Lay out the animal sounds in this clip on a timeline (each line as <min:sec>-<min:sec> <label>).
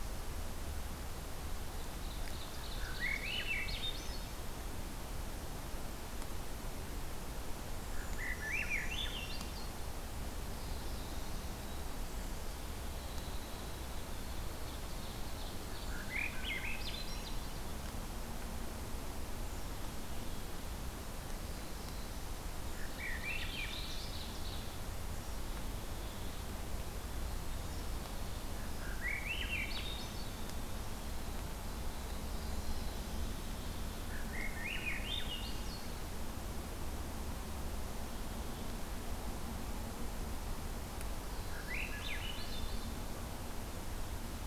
0:01.8-0:03.7 Ovenbird (Seiurus aurocapilla)
0:02.7-0:04.3 Swainson's Thrush (Catharus ustulatus)
0:07.9-0:09.7 Swainson's Thrush (Catharus ustulatus)
0:07.9-0:09.4 Brown Creeper (Certhia americana)
0:10.6-0:11.6 Black-throated Blue Warbler (Setophaga caerulescens)
0:12.8-0:17.8 Winter Wren (Troglodytes hiemalis)
0:15.9-0:17.3 Swainson's Thrush (Catharus ustulatus)
0:19.4-0:20.8 Black-capped Chickadee (Poecile atricapillus)
0:21.4-0:22.6 Black-throated Blue Warbler (Setophaga caerulescens)
0:22.7-0:24.1 Swainson's Thrush (Catharus ustulatus)
0:23.0-0:24.9 Ovenbird (Seiurus aurocapilla)
0:25.2-0:26.5 Black-capped Chickadee (Poecile atricapillus)
0:26.6-0:33.1 Winter Wren (Troglodytes hiemalis)
0:27.4-0:28.5 Black-capped Chickadee (Poecile atricapillus)
0:28.5-0:30.3 Swainson's Thrush (Catharus ustulatus)
0:31.6-0:33.0 Black-throated Blue Warbler (Setophaga caerulescens)
0:32.8-0:34.3 Black-capped Chickadee (Poecile atricapillus)
0:34.0-0:35.8 Swainson's Thrush (Catharus ustulatus)
0:41.2-0:42.2 Black-throated Blue Warbler (Setophaga caerulescens)
0:41.3-0:42.9 Swainson's Thrush (Catharus ustulatus)